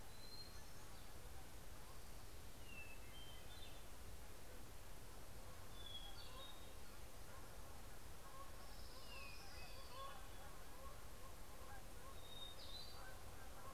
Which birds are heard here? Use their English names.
Hermit Thrush, Canada Goose, Orange-crowned Warbler